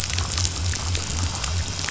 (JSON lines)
{"label": "biophony", "recorder": "SoundTrap 500"}